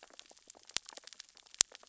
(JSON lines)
{"label": "biophony, sea urchins (Echinidae)", "recorder": "SoundTrap 600 or HydroMoth"}